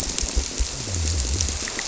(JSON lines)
{"label": "biophony", "recorder": "SoundTrap 300"}